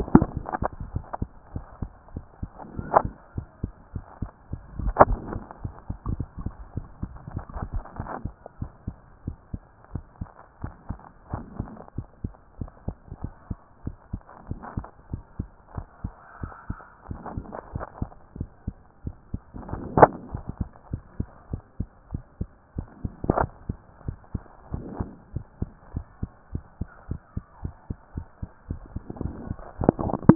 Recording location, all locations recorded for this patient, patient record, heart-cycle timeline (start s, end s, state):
mitral valve (MV)
aortic valve (AV)+tricuspid valve (TV)+mitral valve (MV)
#Age: Child
#Sex: Male
#Height: 124.0 cm
#Weight: 44.4 kg
#Pregnancy status: False
#Murmur: Absent
#Murmur locations: nan
#Most audible location: nan
#Systolic murmur timing: nan
#Systolic murmur shape: nan
#Systolic murmur grading: nan
#Systolic murmur pitch: nan
#Systolic murmur quality: nan
#Diastolic murmur timing: nan
#Diastolic murmur shape: nan
#Diastolic murmur grading: nan
#Diastolic murmur pitch: nan
#Diastolic murmur quality: nan
#Outcome: Abnormal
#Campaign: 2014 screening campaign
0.00	8.49	unannotated
8.49	8.60	diastole
8.60	8.70	S1
8.70	8.86	systole
8.86	8.96	S2
8.96	9.26	diastole
9.26	9.36	S1
9.36	9.52	systole
9.52	9.62	S2
9.62	9.92	diastole
9.92	10.04	S1
10.04	10.20	systole
10.20	10.30	S2
10.30	10.62	diastole
10.62	10.72	S1
10.72	10.88	systole
10.88	10.98	S2
10.98	11.32	diastole
11.32	11.44	S1
11.44	11.58	systole
11.58	11.70	S2
11.70	11.96	diastole
11.96	12.08	S1
12.08	12.22	systole
12.22	12.32	S2
12.32	12.58	diastole
12.58	12.70	S1
12.70	12.86	systole
12.86	12.96	S2
12.96	13.22	diastole
13.22	13.32	S1
13.32	13.48	systole
13.48	13.58	S2
13.58	13.84	diastole
13.84	13.96	S1
13.96	14.12	systole
14.12	14.22	S2
14.22	14.48	diastole
14.48	14.60	S1
14.60	14.76	systole
14.76	14.86	S2
14.86	15.12	diastole
15.12	15.22	S1
15.22	15.38	systole
15.38	15.48	S2
15.48	15.76	diastole
15.76	15.86	S1
15.86	16.02	systole
16.02	16.12	S2
16.12	16.42	diastole
16.42	16.52	S1
16.52	16.68	systole
16.68	16.78	S2
16.78	17.08	diastole
17.08	17.20	S1
17.20	17.34	systole
17.34	17.44	S2
17.44	17.74	diastole
17.74	17.84	S1
17.84	18.00	systole
18.00	18.10	S2
18.10	18.38	diastole
18.38	18.50	S1
18.50	18.66	systole
18.66	18.76	S2
18.76	19.04	diastole
19.04	19.16	S1
19.16	19.32	systole
19.32	19.42	S2
19.42	19.71	diastole
19.71	30.35	unannotated